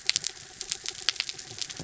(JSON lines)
{"label": "anthrophony, mechanical", "recorder": "SoundTrap 300"}